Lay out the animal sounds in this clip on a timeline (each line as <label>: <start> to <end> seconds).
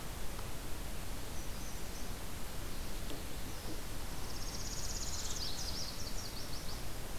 Magnolia Warbler (Setophaga magnolia): 1.2 to 2.1 seconds
Northern Parula (Setophaga americana): 4.0 to 5.7 seconds
Nashville Warbler (Leiothlypis ruficapilla): 4.6 to 7.1 seconds